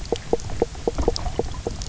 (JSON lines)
{"label": "biophony, knock croak", "recorder": "SoundTrap 300"}